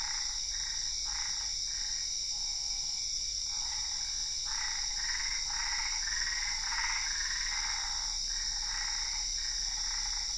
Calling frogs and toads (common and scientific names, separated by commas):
Boana albopunctata